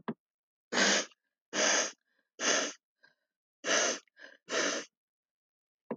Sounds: Sniff